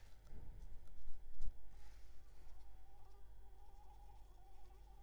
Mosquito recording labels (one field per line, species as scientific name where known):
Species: Anopheles arabiensis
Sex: female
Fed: unfed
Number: one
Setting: cup